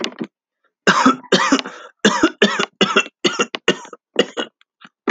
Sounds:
Cough